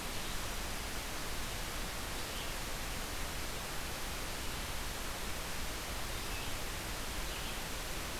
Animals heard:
forest ambience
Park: Acadia National Park